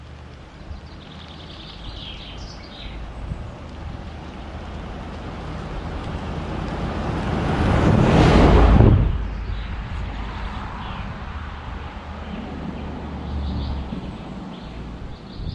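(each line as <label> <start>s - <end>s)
Continuous, soft natural ambiance with subtle environmental sounds. 0.0s - 0.6s
Soft, continuous chirping and tweeting of birds creating a natural background. 0.6s - 4.4s
Continuous, soft natural ambiance with subtle environmental sounds. 4.4s - 6.8s
A car whooshes by with a quick rise and fall in volume and pitch. 6.8s - 9.3s
Soft, continuous chirping and tweeting of birds creating a natural background. 9.3s - 15.5s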